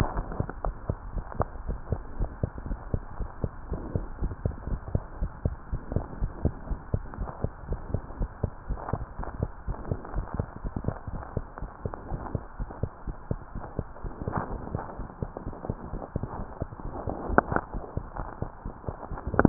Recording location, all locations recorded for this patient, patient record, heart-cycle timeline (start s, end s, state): tricuspid valve (TV)
aortic valve (AV)+pulmonary valve (PV)+tricuspid valve (TV)+mitral valve (MV)
#Age: Child
#Sex: Female
#Height: 99.0 cm
#Weight: 16.0 kg
#Pregnancy status: False
#Murmur: Absent
#Murmur locations: nan
#Most audible location: nan
#Systolic murmur timing: nan
#Systolic murmur shape: nan
#Systolic murmur grading: nan
#Systolic murmur pitch: nan
#Systolic murmur quality: nan
#Diastolic murmur timing: nan
#Diastolic murmur shape: nan
#Diastolic murmur grading: nan
#Diastolic murmur pitch: nan
#Diastolic murmur quality: nan
#Outcome: Abnormal
#Campaign: 2015 screening campaign
0.00	1.00	unannotated
1.00	1.10	diastole
1.10	1.24	S1
1.24	1.36	systole
1.36	1.50	S2
1.50	1.66	diastole
1.66	1.80	S1
1.80	1.88	systole
1.88	2.02	S2
2.02	2.18	diastole
2.18	2.32	S1
2.32	2.40	systole
2.40	2.50	S2
2.50	2.64	diastole
2.64	2.78	S1
2.78	2.90	systole
2.90	3.04	S2
3.04	3.18	diastole
3.18	3.28	S1
3.28	3.40	systole
3.40	3.52	S2
3.52	3.68	diastole
3.68	3.82	S1
3.82	3.92	systole
3.92	4.06	S2
4.06	4.18	diastole
4.18	4.36	S1
4.36	4.42	systole
4.42	4.54	S2
4.54	4.66	diastole
4.66	4.80	S1
4.80	4.92	systole
4.92	5.06	S2
5.06	5.20	diastole
5.20	5.30	S1
5.30	5.42	systole
5.42	5.56	S2
5.56	5.70	diastole
5.70	5.80	S1
5.80	5.92	systole
5.92	6.06	S2
6.06	6.20	diastole
6.20	6.34	S1
6.34	6.42	systole
6.42	6.56	S2
6.56	6.68	diastole
6.68	6.78	S1
6.78	6.90	systole
6.90	7.02	S2
7.02	7.18	diastole
7.18	7.30	S1
7.30	7.42	systole
7.42	7.52	S2
7.52	7.68	diastole
7.68	7.80	S1
7.80	7.88	systole
7.88	8.02	S2
8.02	8.18	diastole
8.18	8.32	S1
8.32	8.42	systole
8.42	8.52	S2
8.52	8.68	diastole
8.68	8.82	S1
8.82	8.94	systole
8.94	9.06	S2
9.06	9.20	diastole
9.20	9.32	S1
9.32	9.40	systole
9.40	9.52	S2
9.52	9.66	diastole
9.66	9.78	S1
9.78	9.90	systole
9.90	10.00	S2
10.00	10.14	diastole
10.14	10.26	S1
10.26	10.34	systole
10.34	10.46	S2
10.46	10.62	diastole
10.62	10.74	S1
10.74	10.86	systole
10.86	10.96	S2
10.96	11.12	diastole
11.12	11.24	S1
11.24	11.36	systole
11.36	11.46	S2
11.46	11.62	diastole
11.62	11.70	S1
11.70	11.84	systole
11.84	11.94	S2
11.94	12.10	diastole
12.10	12.24	S1
12.24	12.34	systole
12.34	12.44	S2
12.44	12.58	diastole
12.58	12.70	S1
12.70	12.82	systole
12.82	12.92	S2
12.92	13.08	diastole
13.08	13.16	S1
13.16	13.26	systole
13.26	13.38	S2
13.38	13.56	diastole
13.56	13.64	S1
13.64	13.78	systole
13.78	13.88	S2
13.88	14.04	diastole
14.04	14.12	S1
14.12	14.20	systole
14.20	14.32	S2
14.32	14.50	diastole
14.50	14.62	S1
14.62	14.72	systole
14.72	14.82	S2
14.82	14.98	diastole
14.98	15.08	S1
15.08	15.20	systole
15.20	15.30	S2
15.30	15.46	diastole
15.46	15.54	S1
15.54	15.68	systole
15.68	15.78	S2
15.78	15.92	diastole
15.92	16.02	S1
16.02	16.14	systole
16.14	16.24	S2
16.24	16.38	diastole
16.38	16.48	S1
16.48	16.60	systole
16.60	16.70	S2
16.70	16.84	diastole
16.84	16.92	S1
16.92	17.04	systole
17.04	17.14	S2
17.14	17.28	diastole
17.28	17.44	S1
17.44	17.50	systole
17.50	17.62	S2
17.62	17.72	diastole
17.72	17.84	S1
17.84	17.92	systole
17.92	18.06	S2
18.06	18.18	diastole
18.18	19.49	unannotated